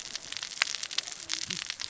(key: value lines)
label: biophony, cascading saw
recorder: SoundTrap 600 or HydroMoth